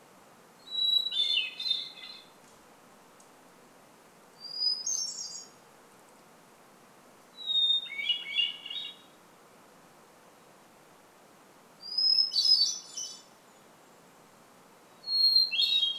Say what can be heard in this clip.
Hermit Thrush song, Golden-crowned Kinglet call